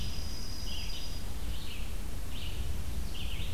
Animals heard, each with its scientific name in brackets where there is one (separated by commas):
Dark-eyed Junco (Junco hyemalis), Red-eyed Vireo (Vireo olivaceus)